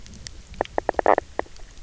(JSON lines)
{"label": "biophony, knock croak", "recorder": "SoundTrap 300"}